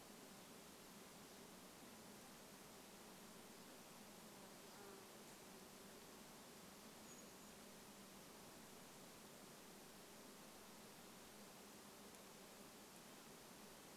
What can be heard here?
insect buzz, Brown Creeper call